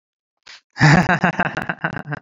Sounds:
Laughter